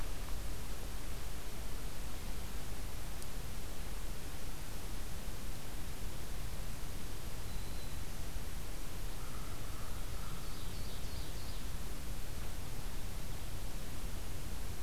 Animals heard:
Black-throated Green Warbler (Setophaga virens)
Ovenbird (Seiurus aurocapilla)
American Crow (Corvus brachyrhynchos)

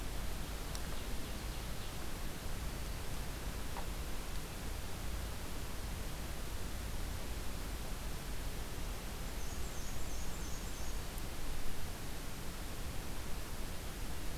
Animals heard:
Black-and-white Warbler (Mniotilta varia)
Black-throated Green Warbler (Setophaga virens)
Ovenbird (Seiurus aurocapilla)

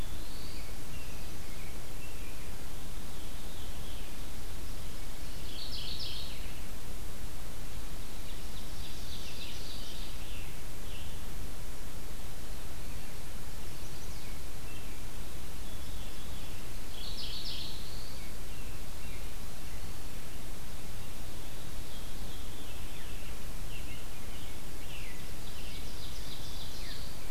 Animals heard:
Mourning Warbler (Geothlypis philadelphia)
Scarlet Tanager (Piranga olivacea)
Black-throated Blue Warbler (Setophaga caerulescens)
Ovenbird (Seiurus aurocapilla)
Veery (Catharus fuscescens)
American Robin (Turdus migratorius)
Chestnut-sided Warbler (Setophaga pensylvanica)

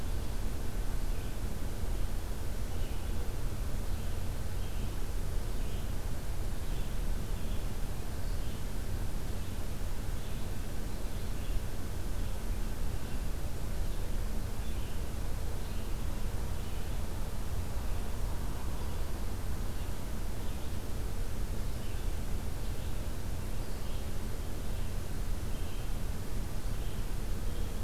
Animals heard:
Red-eyed Vireo (Vireo olivaceus)

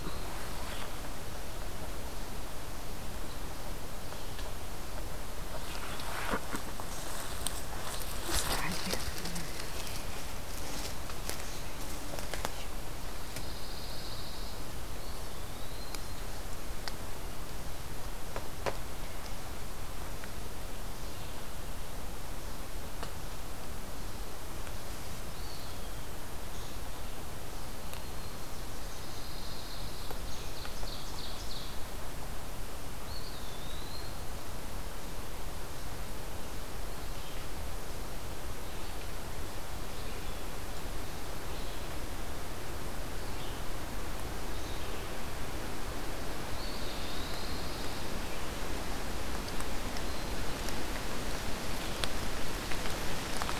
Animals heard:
Red-eyed Vireo (Vireo olivaceus)
Ovenbird (Seiurus aurocapilla)
Pine Warbler (Setophaga pinus)
Eastern Wood-Pewee (Contopus virens)
Black-throated Green Warbler (Setophaga virens)

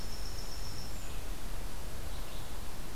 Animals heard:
Winter Wren (Troglodytes hiemalis)
Red-eyed Vireo (Vireo olivaceus)

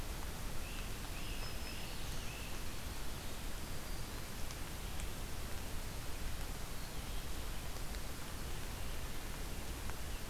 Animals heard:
Black-throated Green Warbler (Setophaga virens)
Great Crested Flycatcher (Myiarchus crinitus)

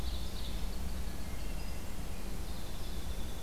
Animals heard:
Ovenbird (Seiurus aurocapilla)
Winter Wren (Troglodytes hiemalis)

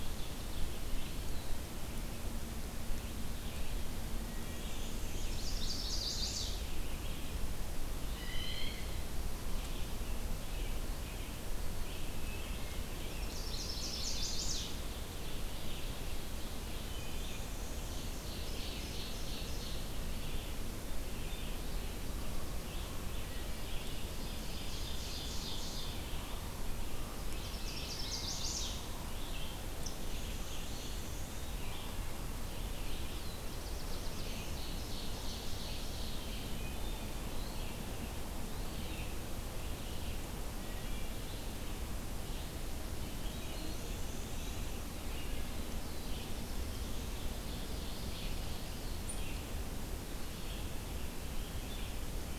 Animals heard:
Wood Thrush (Hylocichla mustelina)
Black-throated Blue Warbler (Setophaga caerulescens)
Red-eyed Vireo (Vireo olivaceus)
Blue Jay (Cyanocitta cristata)
Ovenbird (Seiurus aurocapilla)
Black-and-white Warbler (Mniotilta varia)
Chestnut-sided Warbler (Setophaga pensylvanica)
Eastern Wood-Pewee (Contopus virens)

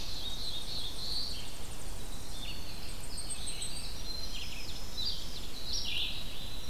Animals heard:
Blackpoll Warbler (Setophaga striata)
Winter Wren (Troglodytes hiemalis)
Black-throated Blue Warbler (Setophaga caerulescens)
Hairy Woodpecker (Dryobates villosus)
Tennessee Warbler (Leiothlypis peregrina)
Ovenbird (Seiurus aurocapilla)
Red-eyed Vireo (Vireo olivaceus)

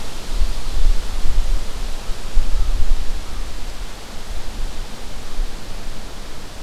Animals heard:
American Crow (Corvus brachyrhynchos)
Eastern Wood-Pewee (Contopus virens)

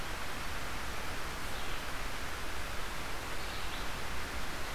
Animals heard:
Red-eyed Vireo (Vireo olivaceus)

